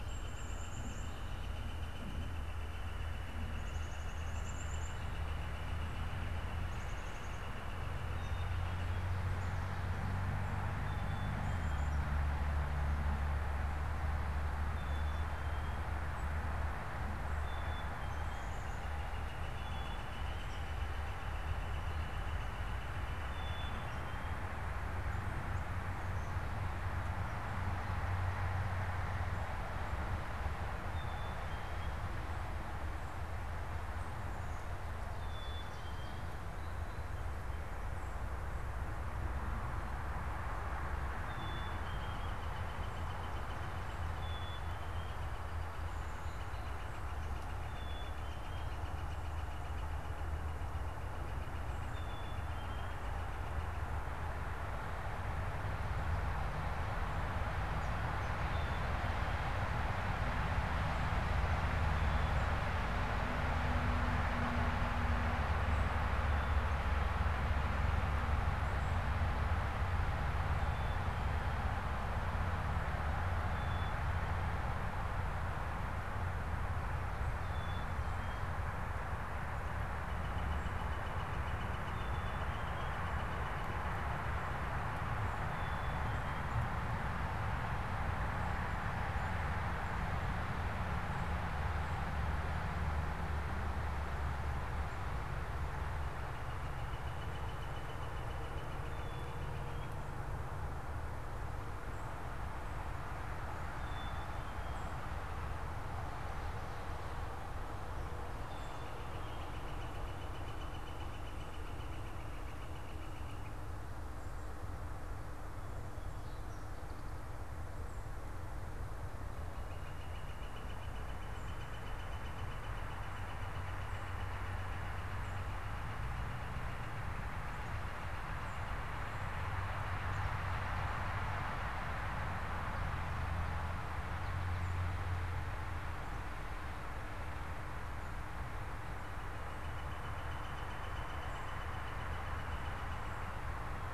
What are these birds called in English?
Northern Flicker, Black-capped Chickadee, American Goldfinch